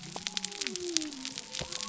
{"label": "biophony", "recorder": "SoundTrap 300"}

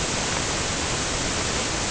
{"label": "ambient", "recorder": "HydroMoth"}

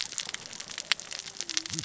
{"label": "biophony, cascading saw", "recorder": "SoundTrap 600 or HydroMoth"}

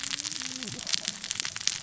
{"label": "biophony, cascading saw", "recorder": "SoundTrap 600 or HydroMoth"}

